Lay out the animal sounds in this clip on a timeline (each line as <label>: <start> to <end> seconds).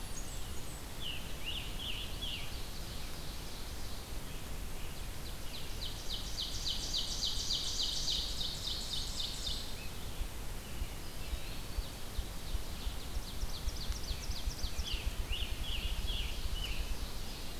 Eastern Wood-Pewee (Contopus virens): 0.0 to 0.6 seconds
Blackburnian Warbler (Setophaga fusca): 0.0 to 0.9 seconds
Red-eyed Vireo (Vireo olivaceus): 0.0 to 17.6 seconds
Scarlet Tanager (Piranga olivacea): 0.6 to 2.8 seconds
Ovenbird (Seiurus aurocapilla): 1.8 to 4.1 seconds
Ovenbird (Seiurus aurocapilla): 5.2 to 9.7 seconds
Blackburnian Warbler (Setophaga fusca): 8.5 to 9.6 seconds
Ruffed Grouse (Bonasa umbellus): 10.3 to 17.2 seconds
Eastern Wood-Pewee (Contopus virens): 10.9 to 12.2 seconds
Ovenbird (Seiurus aurocapilla): 11.7 to 15.2 seconds
Scarlet Tanager (Piranga olivacea): 14.5 to 17.2 seconds
Ovenbird (Seiurus aurocapilla): 15.6 to 17.6 seconds